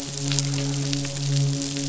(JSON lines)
{"label": "biophony, midshipman", "recorder": "SoundTrap 500"}